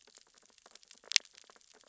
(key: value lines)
label: biophony, sea urchins (Echinidae)
recorder: SoundTrap 600 or HydroMoth